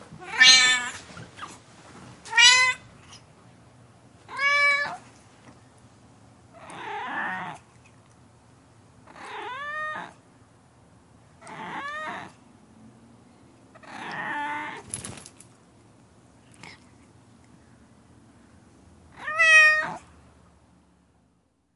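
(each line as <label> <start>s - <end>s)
A cat meows clearly with a high-pitched sound. 0.2s - 3.2s
A cat meows softly and repeatedly with a low pitch. 4.1s - 20.7s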